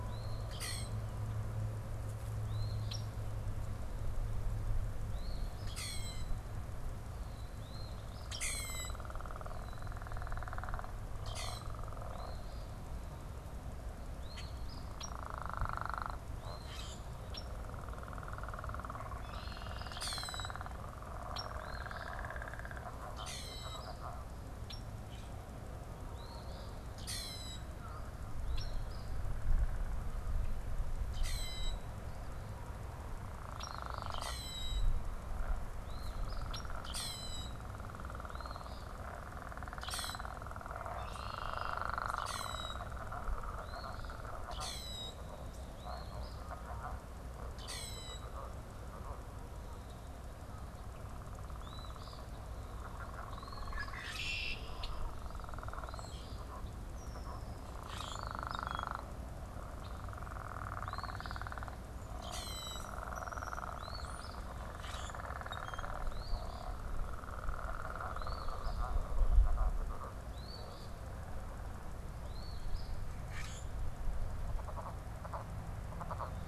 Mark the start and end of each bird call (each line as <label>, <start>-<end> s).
Eastern Phoebe (Sayornis phoebe), 0.0-0.7 s
Common Grackle (Quiscalus quiscula), 0.3-1.1 s
Eastern Phoebe (Sayornis phoebe), 2.4-3.2 s
Red-winged Blackbird (Agelaius phoeniceus), 2.8-3.0 s
Eastern Phoebe (Sayornis phoebe), 4.9-5.9 s
Common Grackle (Quiscalus quiscula), 5.5-6.3 s
Eastern Phoebe (Sayornis phoebe), 7.6-8.3 s
Common Grackle (Quiscalus quiscula), 8.2-9.1 s
Common Grackle (Quiscalus quiscula), 11.1-11.7 s
Eastern Phoebe (Sayornis phoebe), 12.0-12.8 s
Eastern Phoebe (Sayornis phoebe), 14.1-14.9 s
Common Grackle (Quiscalus quiscula), 14.3-14.5 s
Red-winged Blackbird (Agelaius phoeniceus), 14.9-15.2 s
Common Grackle (Quiscalus quiscula), 16.5-17.1 s
Red-winged Blackbird (Agelaius phoeniceus), 17.2-17.7 s
Eastern Phoebe (Sayornis phoebe), 19.0-19.9 s
Common Grackle (Quiscalus quiscula), 19.9-20.6 s
Red-winged Blackbird (Agelaius phoeniceus), 21.3-21.5 s
Eastern Phoebe (Sayornis phoebe), 21.5-22.1 s
Common Grackle (Quiscalus quiscula), 23.1-23.9 s
Red-winged Blackbird (Agelaius phoeniceus), 24.6-24.9 s
Eastern Phoebe (Sayornis phoebe), 26.1-26.7 s
Common Grackle (Quiscalus quiscula), 26.8-27.6 s
Eastern Phoebe (Sayornis phoebe), 28.3-29.2 s
Red-winged Blackbird (Agelaius phoeniceus), 28.5-28.7 s
Common Grackle (Quiscalus quiscula), 31.0-31.7 s
Eastern Phoebe (Sayornis phoebe), 33.4-34.2 s
Red-winged Blackbird (Agelaius phoeniceus), 33.5-33.7 s
Common Grackle (Quiscalus quiscula), 33.9-34.9 s
Eastern Phoebe (Sayornis phoebe), 35.7-36.5 s
Red-winged Blackbird (Agelaius phoeniceus), 36.4-36.7 s
Common Grackle (Quiscalus quiscula), 36.7-37.5 s
Eastern Phoebe (Sayornis phoebe), 38.2-38.9 s
Common Grackle (Quiscalus quiscula), 39.7-40.3 s
Eastern Phoebe (Sayornis phoebe), 41.1-41.8 s
Common Grackle (Quiscalus quiscula), 42.0-42.8 s
Eastern Phoebe (Sayornis phoebe), 43.5-44.2 s
Common Grackle (Quiscalus quiscula), 44.3-45.1 s
Eastern Phoebe (Sayornis phoebe), 45.6-46.4 s
Common Grackle (Quiscalus quiscula), 47.4-48.3 s
Eastern Phoebe (Sayornis phoebe), 51.4-54.0 s
Red-winged Blackbird (Agelaius phoeniceus), 53.6-55.0 s
Eastern Phoebe (Sayornis phoebe), 55.6-56.4 s
Eastern Phoebe (Sayornis phoebe), 57.8-58.8 s
Common Grackle (Quiscalus quiscula), 57.8-58.9 s
Eastern Phoebe (Sayornis phoebe), 60.7-61.5 s
Common Grackle (Quiscalus quiscula), 62.1-62.9 s
European Starling (Sturnus vulgaris), 62.3-64.4 s
Eastern Phoebe (Sayornis phoebe), 63.6-64.4 s
Common Grackle (Quiscalus quiscula), 64.6-65.9 s
Eastern Phoebe (Sayornis phoebe), 66.0-66.7 s
Eastern Phoebe (Sayornis phoebe), 68.0-68.8 s
Eastern Phoebe (Sayornis phoebe), 70.1-71.0 s
Eastern Phoebe (Sayornis phoebe), 72.1-73.0 s
Common Grackle (Quiscalus quiscula), 73.2-73.8 s